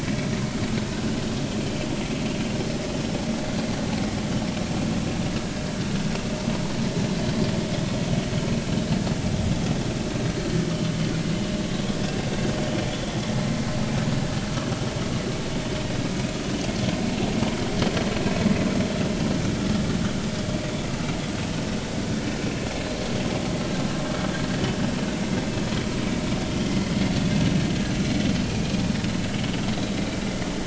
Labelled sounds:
28.4	28.7	vessel noise, 2.3 to 2.5 kHz

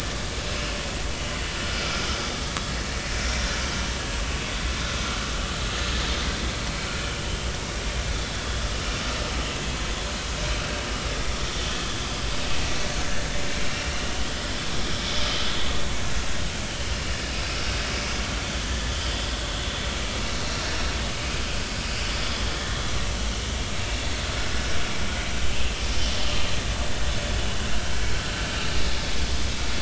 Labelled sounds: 3.2	3.5	vessel noise, 5.5 to 5.7 kHz
13.6	13.9	vessel noise, 2.7 to 2.8 kHz
21.4	21.7	vessel noise, 4.6 to 4.8 kHz
22.2	22.8	vessel noise, 1.6 to 3.5 kHz

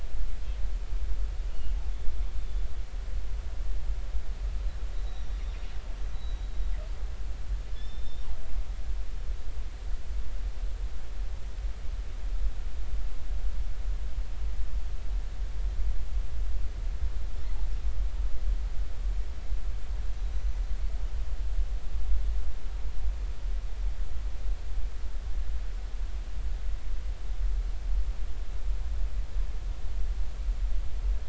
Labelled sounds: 1.5	1.7	killer whale, northern resident, G clan, GG subclan, 2.8 to 3.0 kHz
2.4	2.7	killer whale, northern resident, G clan, GG subclan, 3.4 to 3.7 kHz
5.0	5.7	killer whale, northern resident, G clan, GG subclan, 3.4 to 5.9 kHz
6.1	6.5	killer whale, northern resident, G clan, GG subclan, 3.8 to 4.0 kHz
7.7	8.3	killer whale, northern resident, G clan, GG subclan, call N28, 3.4 to 5.4 kHz
20.3	20.6	killer whale, northern resident, G clan, GG subclan, call N28, 5.9 to 6.0 kHz

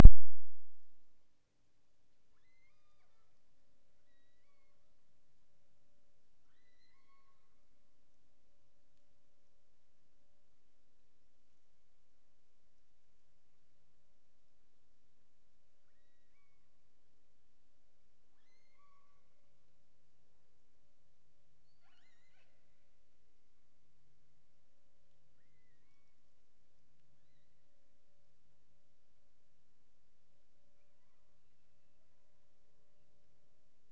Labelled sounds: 2.3	3.4	killer whale, offshore, 0.70 to 6.6 kHz
4.0	5.0	killer whale, offshore, 0.89 to 5.1 kHz
6.4	8.0	killer whale, offshore, 0.86 to 6.4 kHz
15.8	16.8	killer whale, offshore, 0.91 to 6.0 kHz
18.3	19.5	killer whale, offshore, 0.68 to 6.9 kHz
21.5	22.7	killer whale, offshore, 0.73 to 8.0 kHz
25.3	26.3	killer whale, offshore, 0.75 to 4.8 kHz
27.1	27.7	killer whale, offshore, 1.4 to 4.3 kHz
30.7	32.6	killer whale, offshore, 0.84 to 3.0 kHz

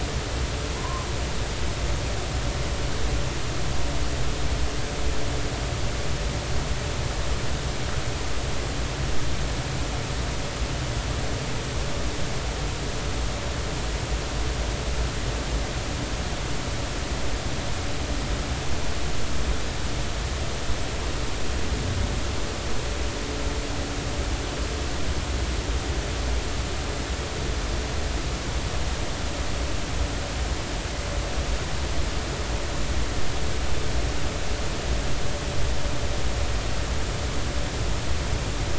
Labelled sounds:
0.8	1.1	humpback whale, 0.93 to 1.2 kHz

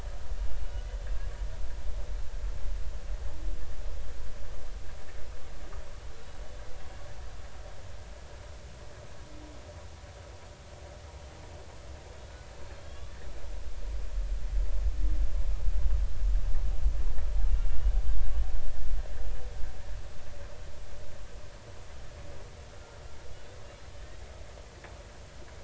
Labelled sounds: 0.6	0.9	humpback whale, 2.8 to 3.0 kHz
12.7	13.2	humpback whale, 3.2 to 3.6 kHz
17.7	18.0	humpback whale, 2.7 to 3.0 kHz
22.7	23.0	humpback whale, 1.3 to 1.4 kHz

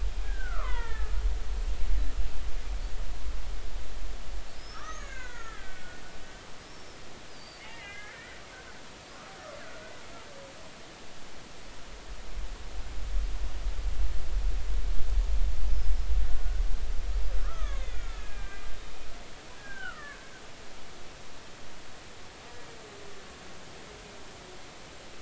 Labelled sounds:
0.2	1.2	killer whale, Bigg's (transient), 0.86 to 3.6 kHz
4.5	6.0	killer whale, Bigg's (transient), 1.1 to 6.8 kHz
6.6	8.4	killer whale, Bigg's (transient), 1.5 to 5.7 kHz
17.4	18.7	killer whale, Bigg's (transient), 1.1 to 3.8 kHz
19.6	20.3	killer whale, Bigg's (transient), 1.1 to 2.0 kHz

